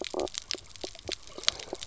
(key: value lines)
label: biophony, knock croak
recorder: SoundTrap 300